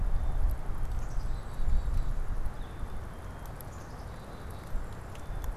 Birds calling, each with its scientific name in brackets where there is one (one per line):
Northern Flicker (Colaptes auratus)
Black-capped Chickadee (Poecile atricapillus)